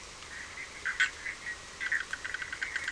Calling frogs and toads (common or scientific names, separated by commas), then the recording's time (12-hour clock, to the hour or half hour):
Bischoff's tree frog
10:30pm